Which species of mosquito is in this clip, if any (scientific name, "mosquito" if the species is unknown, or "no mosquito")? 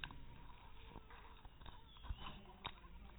mosquito